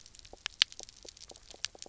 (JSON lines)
{"label": "biophony, knock croak", "recorder": "SoundTrap 300"}